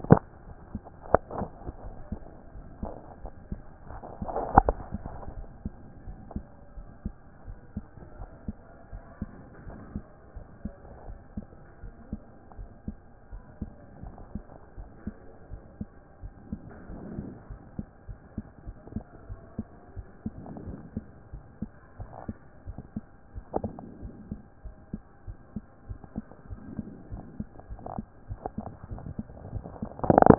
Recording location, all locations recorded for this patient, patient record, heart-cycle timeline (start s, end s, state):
aortic valve (AV)
aortic valve (AV)+pulmonary valve (PV)+tricuspid valve (TV)+mitral valve (MV)
#Age: Child
#Sex: Male
#Height: 123.0 cm
#Weight: 20.5 kg
#Pregnancy status: False
#Murmur: Absent
#Murmur locations: nan
#Most audible location: nan
#Systolic murmur timing: nan
#Systolic murmur shape: nan
#Systolic murmur grading: nan
#Systolic murmur pitch: nan
#Systolic murmur quality: nan
#Diastolic murmur timing: nan
#Diastolic murmur shape: nan
#Diastolic murmur grading: nan
#Diastolic murmur pitch: nan
#Diastolic murmur quality: nan
#Outcome: Abnormal
#Campaign: 2014 screening campaign
0.00	5.36	unannotated
5.36	5.48	S1
5.48	5.64	systole
5.64	5.72	S2
5.72	6.06	diastole
6.06	6.18	S1
6.18	6.34	systole
6.34	6.44	S2
6.44	6.76	diastole
6.76	6.88	S1
6.88	7.04	systole
7.04	7.14	S2
7.14	7.46	diastole
7.46	7.58	S1
7.58	7.74	systole
7.74	7.84	S2
7.84	8.18	diastole
8.18	8.30	S1
8.30	8.46	systole
8.46	8.56	S2
8.56	8.92	diastole
8.92	9.02	S1
9.02	9.20	systole
9.20	9.30	S2
9.30	9.66	diastole
9.66	9.78	S1
9.78	9.94	systole
9.94	10.04	S2
10.04	10.34	diastole
10.34	10.46	S1
10.46	10.64	systole
10.64	10.72	S2
10.72	11.06	diastole
11.06	11.18	S1
11.18	11.36	systole
11.36	11.46	S2
11.46	11.82	diastole
11.82	11.94	S1
11.94	12.10	systole
12.10	12.20	S2
12.20	12.58	diastole
12.58	12.70	S1
12.70	12.86	systole
12.86	12.96	S2
12.96	13.32	diastole
13.32	13.42	S1
13.42	13.60	systole
13.60	13.70	S2
13.70	14.02	diastole
14.02	14.14	S1
14.14	14.34	systole
14.34	14.44	S2
14.44	14.78	diastole
14.78	14.88	S1
14.88	15.06	systole
15.06	15.16	S2
15.16	15.50	diastole
15.50	15.62	S1
15.62	15.80	systole
15.80	15.88	S2
15.88	16.22	diastole
16.22	16.34	S1
16.34	16.50	systole
16.50	16.60	S2
16.60	16.90	diastole
16.90	17.02	S1
17.02	17.18	systole
17.18	17.30	S2
17.30	17.50	diastole
17.50	17.62	S1
17.62	17.78	systole
17.78	17.84	S2
17.84	18.08	diastole
18.08	18.20	S1
18.20	18.36	systole
18.36	18.44	S2
18.44	18.66	diastole
18.66	18.76	S1
18.76	18.94	systole
18.94	19.02	S2
19.02	19.28	diastole
19.28	19.40	S1
19.40	19.58	systole
19.58	19.68	S2
19.68	19.96	diastole
19.96	20.06	S1
20.06	20.24	systole
20.24	20.32	S2
20.32	20.66	diastole
20.66	20.78	S1
20.78	20.94	systole
20.94	21.04	S2
21.04	21.32	diastole
21.32	21.44	S1
21.44	21.60	systole
21.60	21.70	S2
21.70	21.98	diastole
21.98	22.10	S1
22.10	22.28	systole
22.28	22.36	S2
22.36	22.66	diastole
22.66	22.78	S1
22.78	22.94	systole
22.94	23.04	S2
23.04	23.34	diastole
23.34	23.44	S1
23.44	23.62	systole
23.62	23.70	S2
23.70	24.02	diastole
24.02	24.14	S1
24.14	24.30	systole
24.30	24.40	S2
24.40	24.64	diastole
24.64	24.74	S1
24.74	24.92	systole
24.92	25.02	S2
25.02	25.26	diastole
25.26	25.38	S1
25.38	25.54	systole
25.54	25.64	S2
25.64	25.88	diastole
25.88	26.00	S1
26.00	26.16	systole
26.16	26.26	S2
26.26	26.50	diastole
26.50	26.60	S1
26.60	26.76	systole
26.76	26.84	S2
26.84	27.12	diastole
27.12	27.24	S1
27.24	27.38	systole
27.38	27.48	S2
27.48	27.70	diastole
27.70	30.38	unannotated